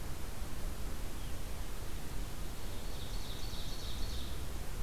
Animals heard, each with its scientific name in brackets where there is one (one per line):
Ovenbird (Seiurus aurocapilla)